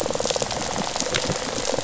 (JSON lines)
{"label": "biophony, rattle response", "recorder": "SoundTrap 500"}